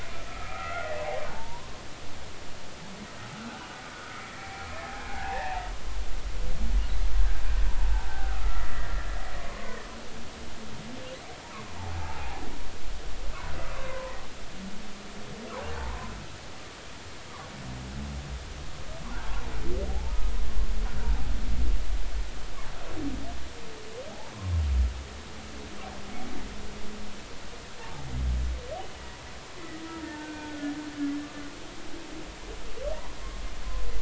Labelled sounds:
0.3	1.8	humpback whale, 0.83 to 2.2 kHz
5.1	5.6	humpback whale, 0.80 to 2.7 kHz
8.1	9.8	humpback whale, 0.96 to 2.0 kHz
11.8	12.4	humpback whale, 0.80 to 1.0 kHz
13.9	14.2	humpback whale, 0.90 to 1.1 kHz
15.8	16.1	humpback whale, 0.83 to 1.1 kHz
19.9	20.2	humpback whale, 0.80 to 1.0 kHz
21.0	21.3	humpback whale, 0.80 to 0.99 kHz
27.8	28.0	humpback whale, 0.80 to 0.96 kHz
29.9	30.7	humpback whale, 0.83 to 1.6 kHz

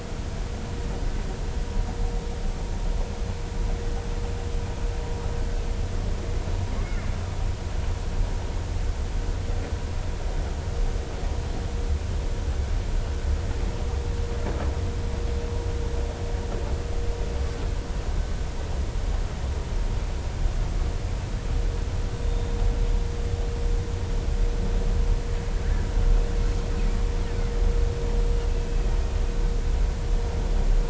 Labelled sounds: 6.8	7.1	killer whale, Bigg's (transient), 2.0 to 2.3 kHz
22.2	22.5	killer whale, Bigg's (transient), 3.6 to 3.7 kHz
28.5	28.9	killer whale, Bigg's (transient), 2.4 to 2.8 kHz

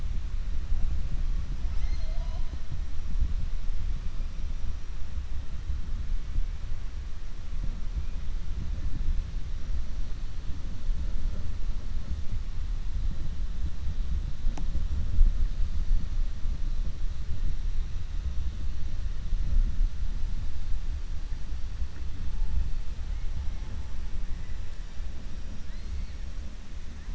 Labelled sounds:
1.6	2.5	killer whale, 0.59 to 6.3 kHz

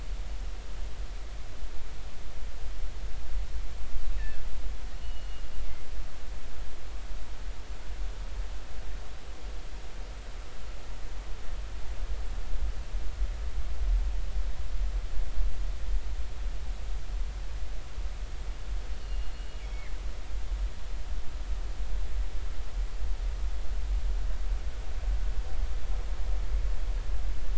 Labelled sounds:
4.1	4.4	killer whale, northern resident, G clan, 1.5 to 2.7 kHz
5.0	5.4	killer whale, northern resident, G clan, GG subclan, call N23ii, 2.8 to 3.0 kHz
19.0	19.9	killer whale, northern resident, G clan, GG subclan, call N23ii, 1.7 to 4.3 kHz

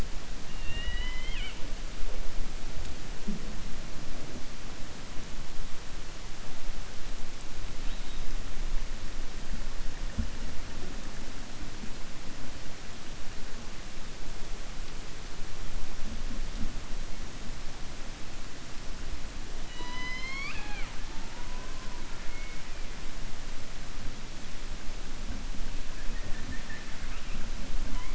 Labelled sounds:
0.5	1.6	killer whale, 0.98 to 4.1 kHz
19.6	21.0	killer whale, 0.46 to 6.2 kHz

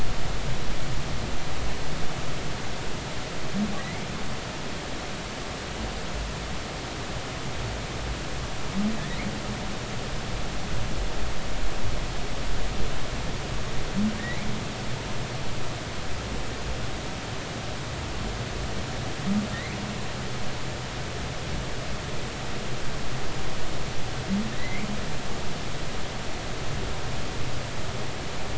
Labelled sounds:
3.8	4.1	humpback whale, 1.8 to 2.4 kHz
14.2	14.5	humpback whale, 1.8 to 2.4 kHz
24.6	24.9	humpback whale, 1.9 to 2.4 kHz

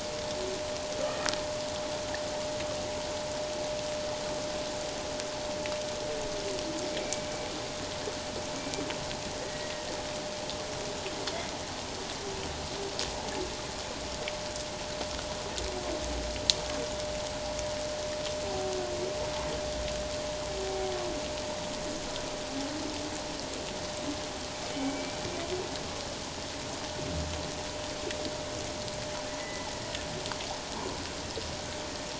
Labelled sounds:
1.0	1.3	humpback whale, 1.2 to 1.4 kHz
7.0	7.3	killer whale, 2.2 to 2.4 kHz
9.4	9.7	killer whale, Bigg's (transient), call T02, 1.8 to 2.0 kHz
24.7	25.2	killer whale, Bigg's (transient), 2.2 to 2.4 kHz
29.4	29.7	killer whale, Bigg's (transient), call T02, 1.8 to 2.1 kHz

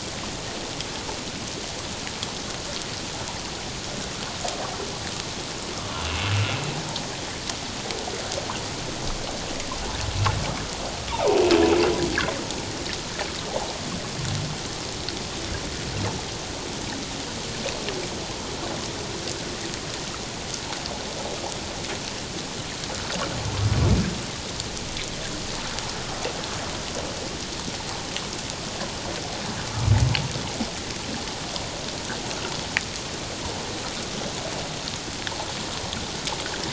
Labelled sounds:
5.7	6.3	humpback whale, 0.91 to 3.0 kHz

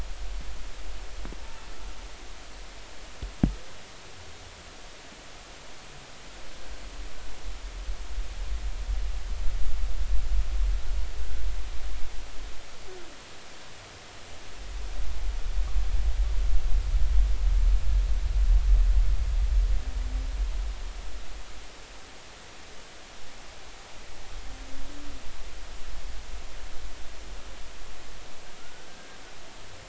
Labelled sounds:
11.2	11.5	humpback whale, 1.5 to 1.6 kHz
28.6	29.2	humpback whale, 1.3 to 1.7 kHz

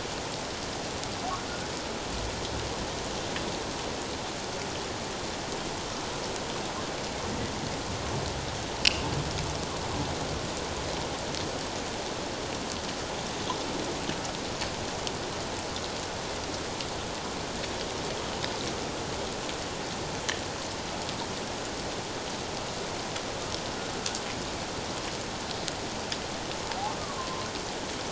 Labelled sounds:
27.2	27.5	humpback whale, 0.97 to 1.1 kHz

